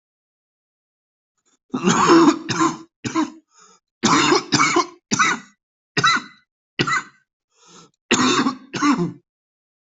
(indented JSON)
{
  "expert_labels": [
    {
      "quality": "good",
      "cough_type": "wet",
      "dyspnea": false,
      "wheezing": false,
      "stridor": false,
      "choking": false,
      "congestion": false,
      "nothing": true,
      "diagnosis": "lower respiratory tract infection",
      "severity": "severe"
    }
  ],
  "age": 37,
  "gender": "male",
  "respiratory_condition": false,
  "fever_muscle_pain": false,
  "status": "healthy"
}